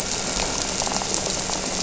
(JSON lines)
{"label": "anthrophony, boat engine", "recorder": "SoundTrap 300"}
{"label": "biophony", "recorder": "SoundTrap 300"}